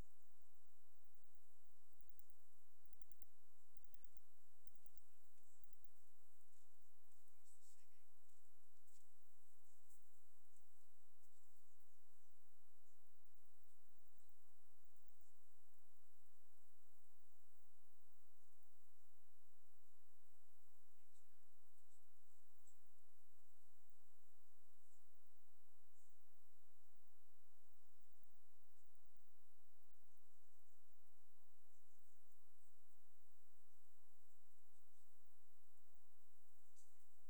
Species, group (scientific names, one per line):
Metaplastes ornatus
Orthoptera